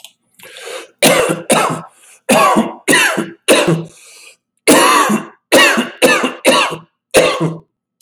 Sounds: Cough